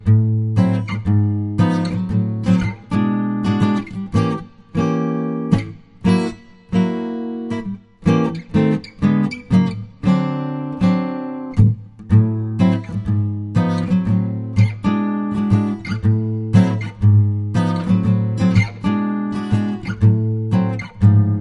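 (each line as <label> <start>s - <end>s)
A guitar plays a calm, repetitive rhythmic pattern indoors. 0.0s - 21.4s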